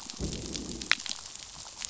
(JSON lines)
{"label": "biophony, growl", "recorder": "SoundTrap 500"}